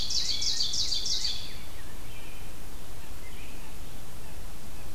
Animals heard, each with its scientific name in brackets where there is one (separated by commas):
Rose-breasted Grosbeak (Pheucticus ludovicianus), Ovenbird (Seiurus aurocapilla)